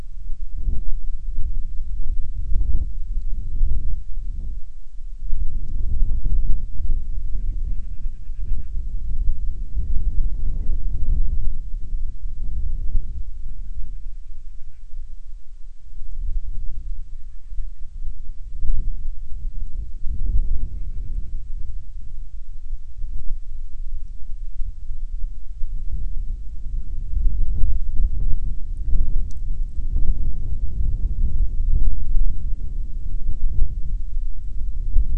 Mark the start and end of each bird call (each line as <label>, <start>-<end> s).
Band-rumped Storm-Petrel (Hydrobates castro), 7.3-8.8 s
Band-rumped Storm-Petrel (Hydrobates castro), 13.4-14.9 s
Band-rumped Storm-Petrel (Hydrobates castro), 16.8-17.9 s
Band-rumped Storm-Petrel (Hydrobates castro), 20.4-21.4 s